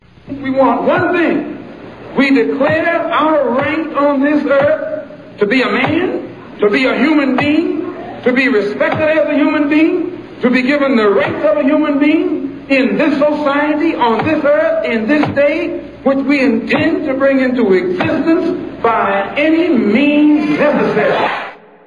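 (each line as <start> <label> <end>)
0.0 Constant white noise. 21.9
0.0 Someone is giving a speech. 21.9
0.0 Stomping sounds repeating with short breaks. 21.9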